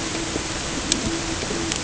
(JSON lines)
{"label": "ambient", "recorder": "HydroMoth"}